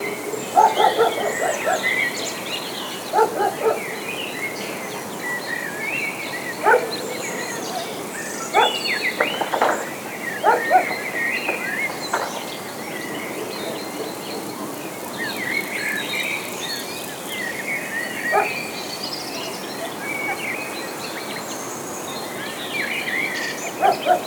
Is the dog barking out loud?
yes